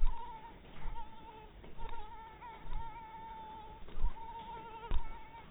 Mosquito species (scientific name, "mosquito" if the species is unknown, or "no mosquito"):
mosquito